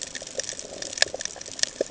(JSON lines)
{"label": "ambient", "recorder": "HydroMoth"}